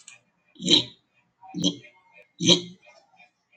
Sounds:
Throat clearing